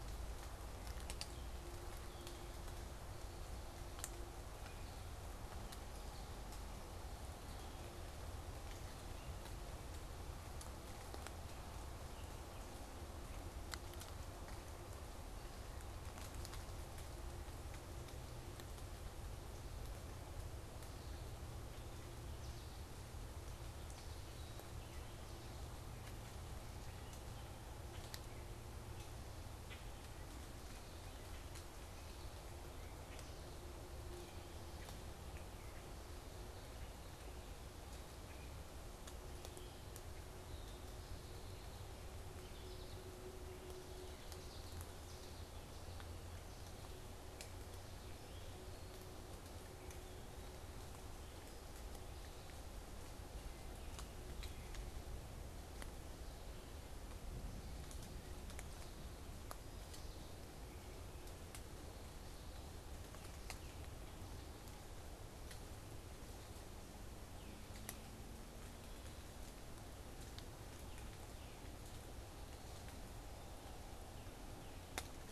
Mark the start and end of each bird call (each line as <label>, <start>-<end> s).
unidentified bird, 0.0-40.9 s
American Goldfinch (Spinus tristis), 41.1-46.0 s
Tufted Titmouse (Baeolophus bicolor), 62.9-64.1 s
Tufted Titmouse (Baeolophus bicolor), 66.9-68.1 s
Tufted Titmouse (Baeolophus bicolor), 70.6-71.7 s
Tufted Titmouse (Baeolophus bicolor), 73.8-75.1 s